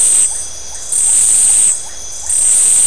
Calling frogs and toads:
Iporanga white-lipped frog
10:30pm

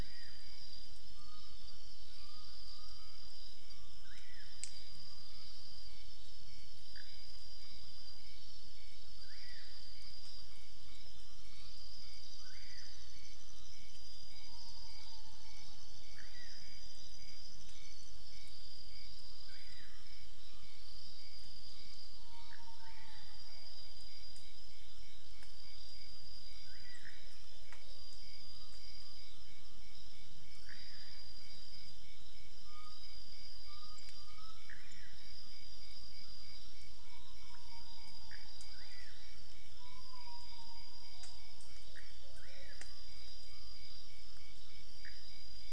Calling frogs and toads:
Pithecopus azureus, pointedbelly frog
4am

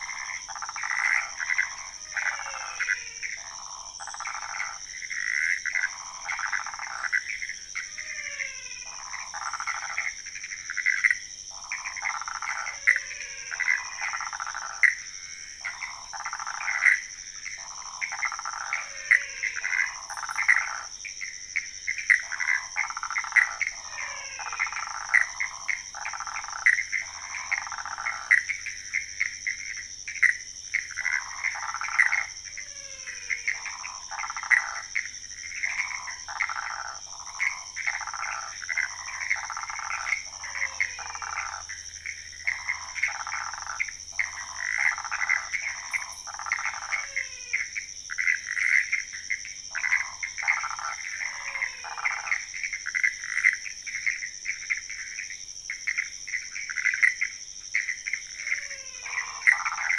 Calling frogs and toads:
waxy monkey tree frog, Pithecopus azureus, menwig frog
1am

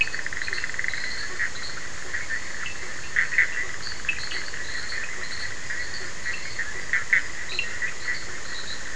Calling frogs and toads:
fine-lined tree frog, Cochran's lime tree frog, two-colored oval frog
11:30pm

